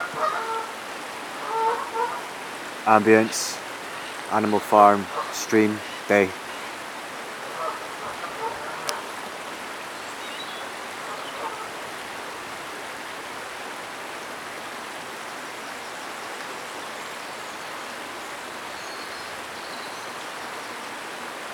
Can fowl be heard?
yes